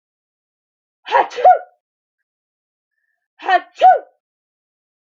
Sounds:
Sneeze